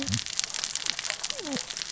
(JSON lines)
{"label": "biophony, cascading saw", "recorder": "SoundTrap 600 or HydroMoth"}